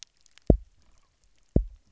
{"label": "biophony, double pulse", "recorder": "SoundTrap 300"}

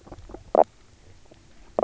{"label": "biophony, knock croak", "recorder": "SoundTrap 300"}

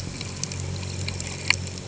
{"label": "anthrophony, boat engine", "recorder": "HydroMoth"}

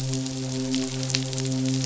{"label": "biophony, midshipman", "recorder": "SoundTrap 500"}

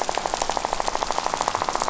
{"label": "biophony, rattle", "recorder": "SoundTrap 500"}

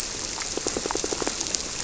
{"label": "biophony, squirrelfish (Holocentrus)", "recorder": "SoundTrap 300"}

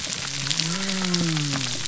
{"label": "biophony", "recorder": "SoundTrap 300"}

